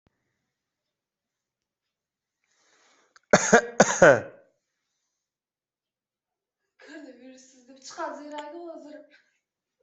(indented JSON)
{
  "expert_labels": [
    {
      "quality": "ok",
      "cough_type": "dry",
      "dyspnea": false,
      "wheezing": false,
      "stridor": false,
      "choking": false,
      "congestion": false,
      "nothing": true,
      "diagnosis": "healthy cough",
      "severity": "pseudocough/healthy cough"
    }
  ],
  "age": 30,
  "gender": "male",
  "respiratory_condition": false,
  "fever_muscle_pain": false,
  "status": "COVID-19"
}